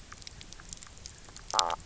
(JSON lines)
{"label": "biophony, knock croak", "recorder": "SoundTrap 300"}